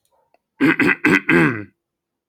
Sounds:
Throat clearing